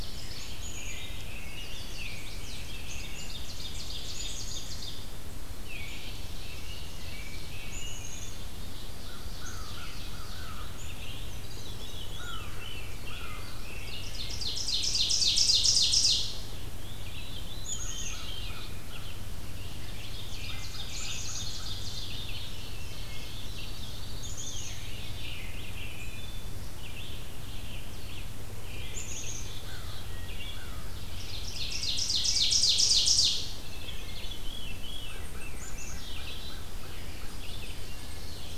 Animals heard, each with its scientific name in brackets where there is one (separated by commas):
American Crow (Corvus brachyrhynchos), Ovenbird (Seiurus aurocapilla), Red-eyed Vireo (Vireo olivaceus), Black-and-white Warbler (Mniotilta varia), Black-capped Chickadee (Poecile atricapillus), Wood Thrush (Hylocichla mustelina), Chestnut-sided Warbler (Setophaga pensylvanica), Veery (Catharus fuscescens), American Robin (Turdus migratorius)